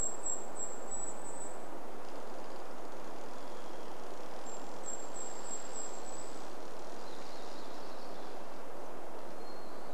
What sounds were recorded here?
Golden-crowned Kinglet song, Hermit Thrush song, tree creak, warbler song, Red-breasted Nuthatch song